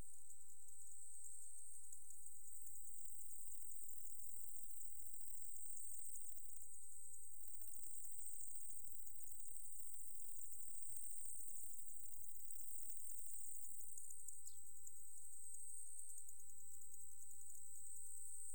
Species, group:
Conocephalus fuscus, Orthoptera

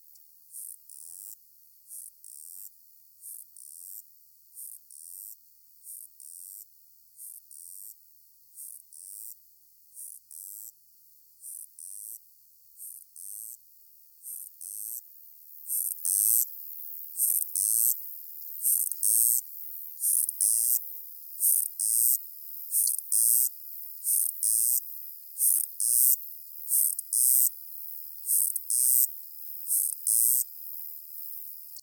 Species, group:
Uromenus rugosicollis, Orthoptera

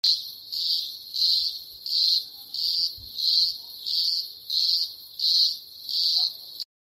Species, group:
Cyclochila australasiae, Cicadidae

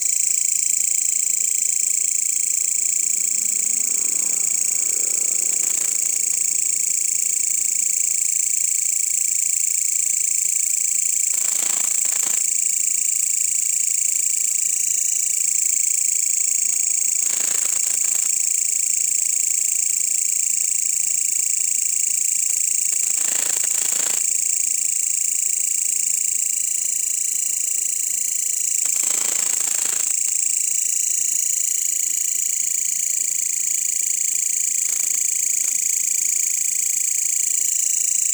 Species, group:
Mecopoda elongata, Orthoptera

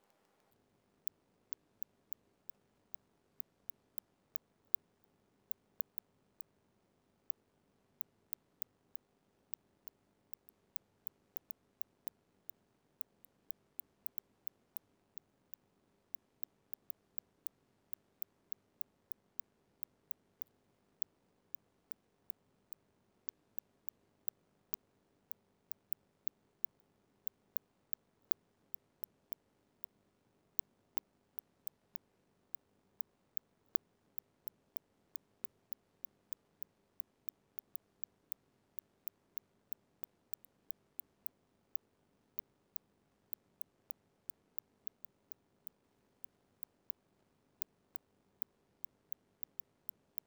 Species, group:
Cyrtaspis scutata, Orthoptera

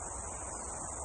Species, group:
Aleeta curvicosta, Cicadidae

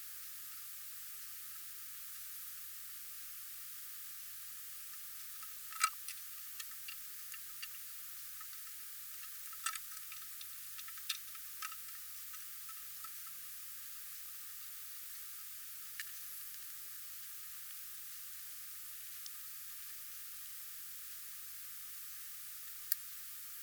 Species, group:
Tylopsis lilifolia, Orthoptera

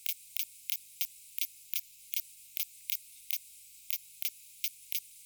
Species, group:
Poecilimon propinquus, Orthoptera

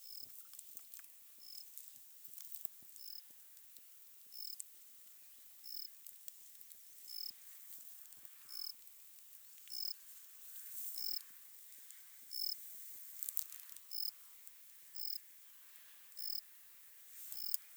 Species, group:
Gryllus assimilis, Orthoptera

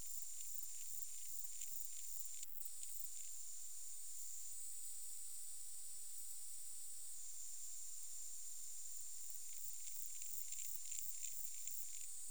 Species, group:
Pseudochorthippus parallelus, Orthoptera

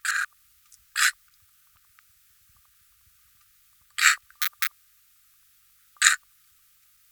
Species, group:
Poecilimon propinquus, Orthoptera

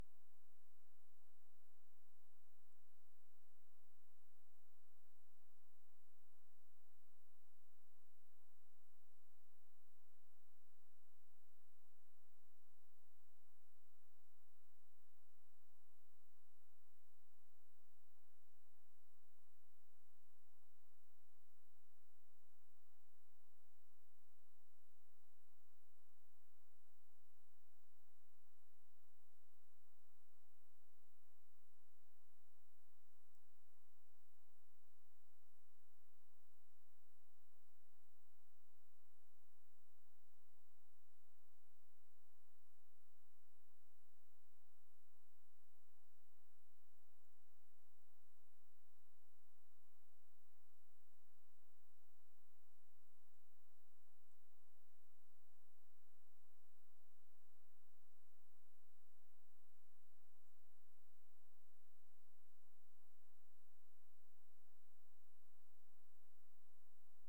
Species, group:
Pholidoptera griseoaptera, Orthoptera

